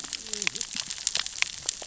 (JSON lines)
{"label": "biophony, cascading saw", "recorder": "SoundTrap 600 or HydroMoth"}